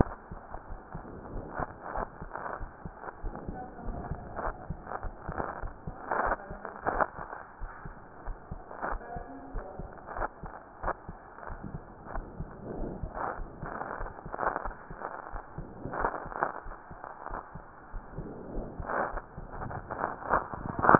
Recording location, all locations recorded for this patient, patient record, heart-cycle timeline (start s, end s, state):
aortic valve (AV)
aortic valve (AV)+pulmonary valve (PV)+tricuspid valve (TV)+mitral valve (MV)
#Age: Child
#Sex: Female
#Height: 127.0 cm
#Weight: 22.2 kg
#Pregnancy status: False
#Murmur: Absent
#Murmur locations: nan
#Most audible location: nan
#Systolic murmur timing: nan
#Systolic murmur shape: nan
#Systolic murmur grading: nan
#Systolic murmur pitch: nan
#Systolic murmur quality: nan
#Diastolic murmur timing: nan
#Diastolic murmur shape: nan
#Diastolic murmur grading: nan
#Diastolic murmur pitch: nan
#Diastolic murmur quality: nan
#Outcome: Abnormal
#Campaign: 2015 screening campaign
0.00	0.42	unannotated
0.42	0.70	diastole
0.70	0.80	S1
0.80	0.92	systole
0.92	1.02	S2
1.02	1.32	diastole
1.32	1.46	S1
1.46	1.52	systole
1.52	1.66	S2
1.66	1.94	diastole
1.94	2.08	S1
2.08	2.20	systole
2.20	2.32	S2
2.32	2.58	diastole
2.58	2.70	S1
2.70	2.84	systole
2.84	2.94	S2
2.94	3.22	diastole
3.22	3.34	S1
3.34	3.44	systole
3.44	3.60	S2
3.60	3.86	diastole
3.86	4.04	S1
4.04	4.08	systole
4.08	4.20	S2
4.20	4.44	diastole
4.44	4.56	S1
4.56	4.66	systole
4.66	4.78	S2
4.78	5.02	diastole
5.02	5.16	S1
5.16	5.26	systole
5.26	5.36	S2
5.36	5.60	diastole
5.60	5.74	S1
5.74	5.84	systole
5.84	5.94	S2
5.94	6.18	diastole
6.18	6.36	S1
6.36	6.50	systole
6.50	6.62	S2
6.62	6.92	diastole
6.92	7.06	S1
7.06	7.18	systole
7.18	7.28	S2
7.28	7.62	diastole
7.62	7.72	S1
7.72	7.84	systole
7.84	7.94	S2
7.94	8.26	diastole
8.26	8.38	S1
8.38	8.50	systole
8.50	8.62	S2
8.62	8.88	diastole
8.88	9.02	S1
9.02	9.14	systole
9.14	9.28	S2
9.28	9.54	diastole
9.54	9.66	S1
9.66	9.80	systole
9.80	9.90	S2
9.90	10.16	diastole
10.16	10.30	S1
10.30	10.44	systole
10.44	10.52	S2
10.52	10.82	diastole
10.82	10.94	S1
10.94	11.08	systole
11.08	11.18	S2
11.18	11.50	diastole
11.50	11.62	S1
11.62	11.72	systole
11.72	11.82	S2
11.82	12.12	diastole
12.12	12.26	S1
12.26	12.38	systole
12.38	12.50	S2
12.50	12.76	diastole
12.76	12.92	S1
12.92	13.00	systole
13.00	13.12	S2
13.12	13.38	diastole
13.38	13.50	S1
13.50	13.60	systole
13.60	13.70	S2
13.70	13.98	diastole
13.98	14.12	S1
14.12	14.24	systole
14.24	14.34	S2
14.34	14.66	diastole
14.66	14.76	S1
14.76	14.90	systole
14.90	14.98	S2
14.98	15.32	diastole
15.32	15.44	S1
15.44	15.56	systole
15.56	15.66	S2
15.66	15.96	diastole
15.96	16.12	S1
16.12	16.26	systole
16.26	16.36	S2
16.36	16.66	diastole
16.66	16.76	S1
16.76	16.90	systole
16.90	16.96	S2
16.96	17.30	diastole
17.30	20.99	unannotated